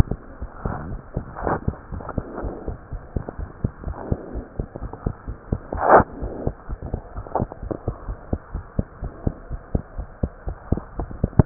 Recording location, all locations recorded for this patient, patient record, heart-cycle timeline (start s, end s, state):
pulmonary valve (PV)
aortic valve (AV)+pulmonary valve (PV)+tricuspid valve (TV)+mitral valve (MV)
#Age: Child
#Sex: Male
#Height: 94.0 cm
#Weight: 13.6 kg
#Pregnancy status: False
#Murmur: Absent
#Murmur locations: nan
#Most audible location: nan
#Systolic murmur timing: nan
#Systolic murmur shape: nan
#Systolic murmur grading: nan
#Systolic murmur pitch: nan
#Systolic murmur quality: nan
#Diastolic murmur timing: nan
#Diastolic murmur shape: nan
#Diastolic murmur grading: nan
#Diastolic murmur pitch: nan
#Diastolic murmur quality: nan
#Outcome: Abnormal
#Campaign: 2015 screening campaign
0.00	1.90	unannotated
1.90	2.03	S1
2.03	2.16	systole
2.16	2.24	S2
2.24	2.42	diastole
2.42	2.54	S1
2.54	2.66	systole
2.66	2.76	S2
2.76	2.91	diastole
2.91	3.02	S1
3.02	3.13	systole
3.13	3.24	S2
3.24	3.38	diastole
3.38	3.48	S1
3.48	3.62	systole
3.62	3.72	S2
3.72	3.86	diastole
3.86	3.96	S1
3.96	4.10	systole
4.10	4.18	S2
4.18	4.34	diastole
4.34	4.44	S1
4.44	4.58	systole
4.58	4.66	S2
4.66	4.81	diastole
4.81	4.90	S1
4.90	5.04	systole
5.04	5.14	S2
5.14	5.28	diastole
5.28	5.36	S1
5.36	5.51	systole
5.51	5.60	S2
5.60	11.46	unannotated